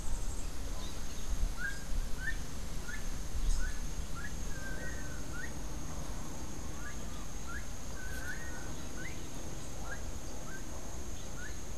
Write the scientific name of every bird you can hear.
Tiaris olivaceus, Ortalis cinereiceps, Basileuterus rufifrons, Chiroxiphia linearis